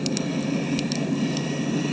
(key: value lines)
label: anthrophony, boat engine
recorder: HydroMoth